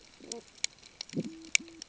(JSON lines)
{"label": "ambient", "recorder": "HydroMoth"}